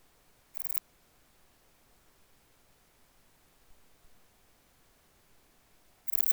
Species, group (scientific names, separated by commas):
Pachytrachis gracilis, Orthoptera